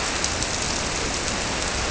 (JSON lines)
{"label": "biophony", "recorder": "SoundTrap 300"}